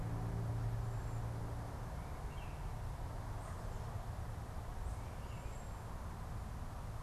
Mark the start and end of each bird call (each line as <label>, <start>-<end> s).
Tufted Titmouse (Baeolophus bicolor), 0.0-7.0 s
Baltimore Oriole (Icterus galbula), 2.1-2.7 s